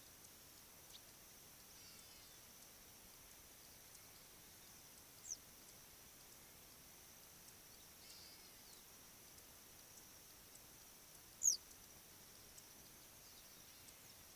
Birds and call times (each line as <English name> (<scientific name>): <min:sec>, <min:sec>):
Hadada Ibis (Bostrychia hagedash): 0:02.2, 0:08.4
Western Yellow Wagtail (Motacilla flava): 0:05.3, 0:11.6